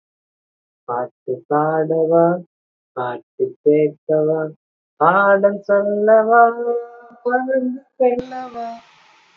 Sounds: Sigh